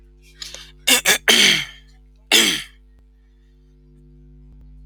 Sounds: Throat clearing